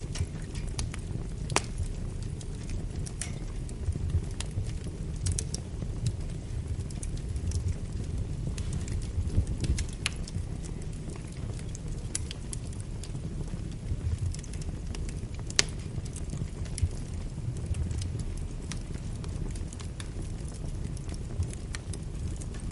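Fire crackling as it burns. 0:00.0 - 0:22.7

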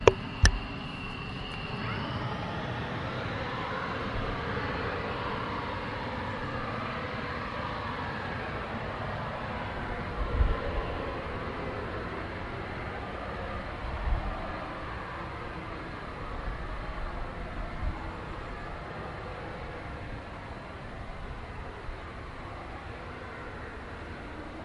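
A jet taxiing to the runway for takeoff. 0:00.1 - 0:24.6
An F16 fighter jet taxis to the runway for take-off. 0:00.1 - 0:24.6
An airplane taxiing to the runway for takeoff. 0:00.1 - 0:24.6

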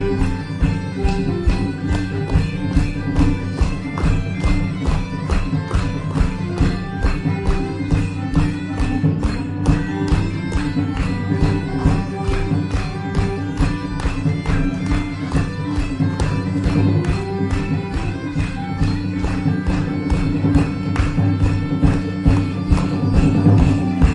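Bagpipes playing medieval-style music. 0:00.0 - 0:24.1
People are clapping rhythmically. 0:00.0 - 0:24.1

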